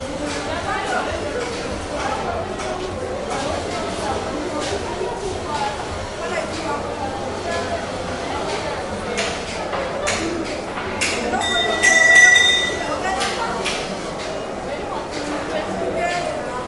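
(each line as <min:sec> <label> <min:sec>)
0:00.0 Muffled clicking sounds in the background. 0:11.2
0:00.0 People talking in the background in a café. 0:16.7
0:11.1 A metallic object falls loudly on the ground. 0:14.3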